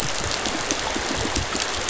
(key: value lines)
label: biophony
recorder: SoundTrap 500